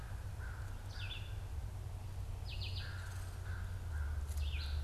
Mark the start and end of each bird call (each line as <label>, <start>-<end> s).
American Crow (Corvus brachyrhynchos), 0.0-4.8 s
Red-eyed Vireo (Vireo olivaceus), 0.0-4.8 s